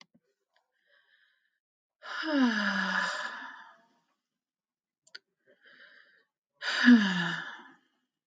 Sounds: Sigh